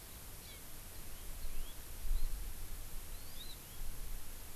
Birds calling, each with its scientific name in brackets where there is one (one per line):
Hawaii Amakihi (Chlorodrepanis virens)